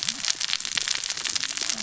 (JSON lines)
{"label": "biophony, cascading saw", "recorder": "SoundTrap 600 or HydroMoth"}